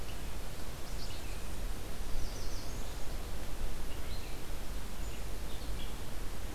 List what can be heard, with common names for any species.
Red-eyed Vireo, Black-capped Chickadee, American Redstart